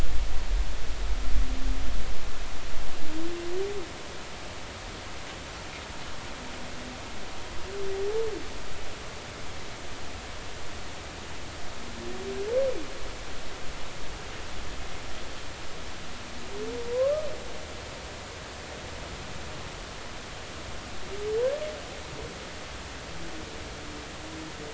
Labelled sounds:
16.9	17.3	humpback whale, 0.96 to 1.3 kHz

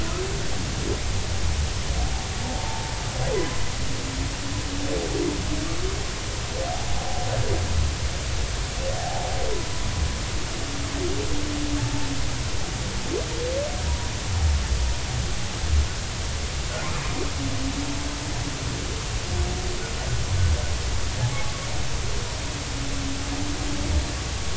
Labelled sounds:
2.5	2.9	humpback whale, 0.80 to 0.93 kHz
3.3	3.6	humpback whale, 0.96 to 1.1 kHz
9.0	9.3	humpback whale, 0.80 to 0.96 kHz

